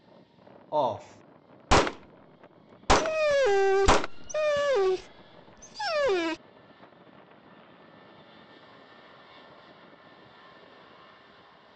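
An unchanging background noise persists. At 0.72 seconds, someone says "off." Then at 1.69 seconds, gunfire can be heard. Over it, at 2.96 seconds, you can hear a dog.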